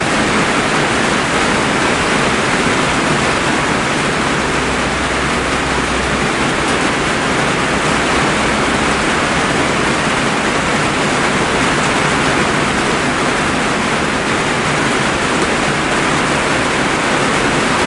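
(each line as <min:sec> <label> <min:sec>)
0:00.0 Heavy rain falls continuously onto a surface, creating a loud, dense, and thunderous drumming of raindrops striking a ceiling or cover. 0:17.9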